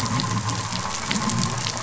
{"label": "anthrophony, boat engine", "recorder": "SoundTrap 500"}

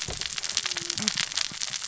{"label": "biophony, cascading saw", "recorder": "SoundTrap 600 or HydroMoth"}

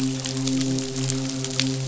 {"label": "biophony, midshipman", "recorder": "SoundTrap 500"}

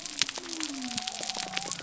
{"label": "biophony", "recorder": "SoundTrap 300"}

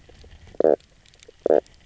{"label": "biophony, knock croak", "recorder": "SoundTrap 300"}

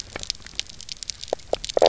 {"label": "biophony, knock croak", "recorder": "SoundTrap 300"}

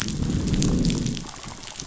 {"label": "biophony, growl", "recorder": "SoundTrap 500"}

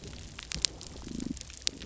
{"label": "biophony, damselfish", "recorder": "SoundTrap 300"}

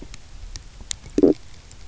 {"label": "biophony, stridulation", "recorder": "SoundTrap 300"}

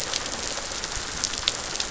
{"label": "biophony", "recorder": "SoundTrap 500"}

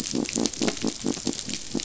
{"label": "biophony", "recorder": "SoundTrap 500"}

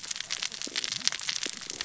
{"label": "biophony, cascading saw", "recorder": "SoundTrap 600 or HydroMoth"}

